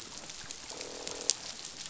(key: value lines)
label: biophony, croak
recorder: SoundTrap 500